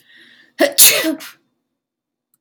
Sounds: Sneeze